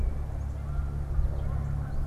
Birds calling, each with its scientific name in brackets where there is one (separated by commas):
Canada Goose (Branta canadensis), Rusty Blackbird (Euphagus carolinus)